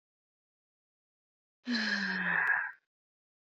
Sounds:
Sigh